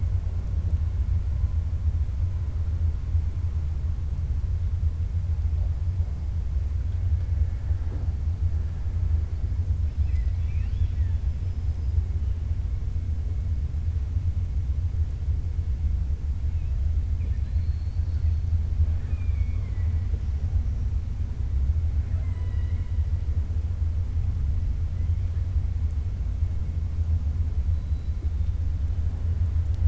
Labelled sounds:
9.9	11.9	killer whale, 1.7 to 5.9 kHz
17.4	18.3	killer whale, 3.5 to 5.1 kHz
18.8	20.0	killer whale, 0.61 to 3.5 kHz
22.0	23.0	killer whale, 0.56 to 4.8 kHz

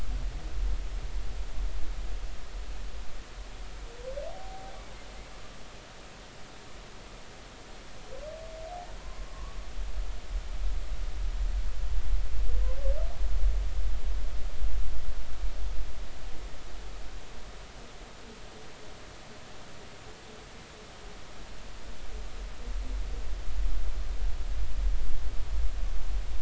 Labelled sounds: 4.3	4.7	humpback whale, 0.80 to 0.83 kHz
8.7	9.6	humpback whale, 0.80 to 1.2 kHz

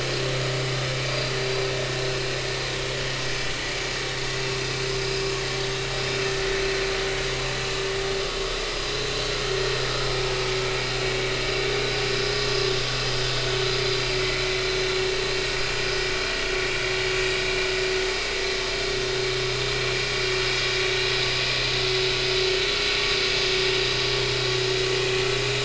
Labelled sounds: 14.1	14.4	vessel noise, 2.0 to 2.1 kHz

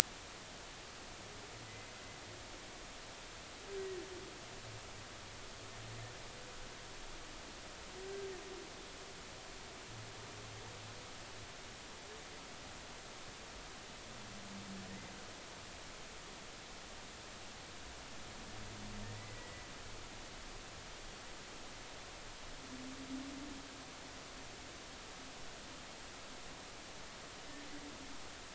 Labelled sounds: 1.7	1.9	humpback whale, 2.0 to 2.1 kHz
19.2	19.7	humpback whale, 1.9 to 2.1 kHz

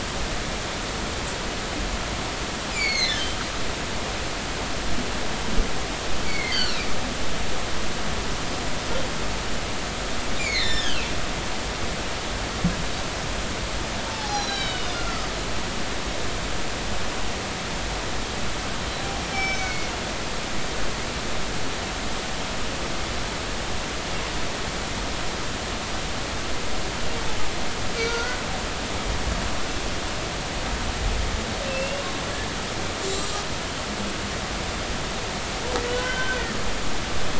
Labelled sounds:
2.7	3.2	humpback whale, 2.0 to 7.4 kHz
6.3	6.8	humpback whale, 1.2 to 4.8 kHz
10.4	11.2	humpback whale, 1.6 to 5.5 kHz
14.0	15.3	humpback whale, 0.80 to 6.5 kHz
19.3	19.9	humpback whale, 2.1 to 6.2 kHz
28.0	28.4	humpback whale, 1.3 to 1.5 kHz
31.7	32.0	humpback whale, 2.6 to 2.8 kHz
33.0	33.4	humpback whale, 3.8 to 7.9 kHz
35.9	36.5	humpback whale, 1.3 to 3.1 kHz

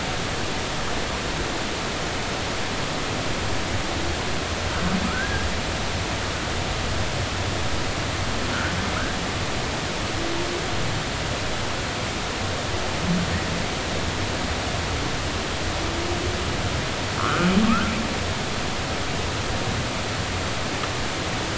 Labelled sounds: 5.0	5.5	humpback whale, 1.2 to 1.7 kHz
17.2	17.9	humpback whale, 1.0 to 1.6 kHz

